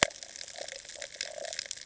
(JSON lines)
{"label": "ambient", "recorder": "HydroMoth"}